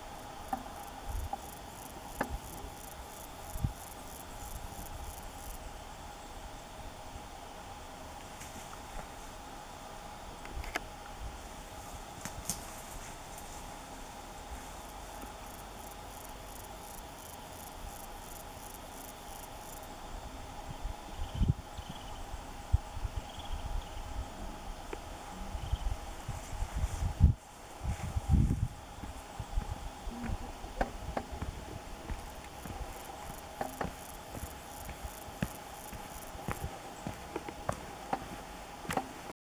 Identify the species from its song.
Pseudochorthippus parallelus